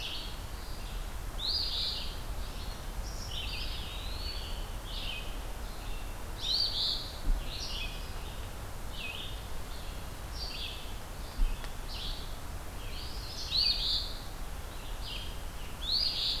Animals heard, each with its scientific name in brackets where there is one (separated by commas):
Eastern Phoebe (Sayornis phoebe), Red-eyed Vireo (Vireo olivaceus), Eastern Wood-Pewee (Contopus virens), Scarlet Tanager (Piranga olivacea)